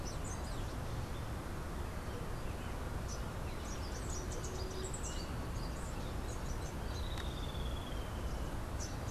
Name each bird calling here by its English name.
Rufous-capped Warbler, Streak-headed Woodcreeper